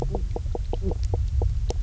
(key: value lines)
label: biophony, knock croak
recorder: SoundTrap 300